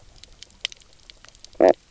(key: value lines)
label: biophony, knock croak
recorder: SoundTrap 300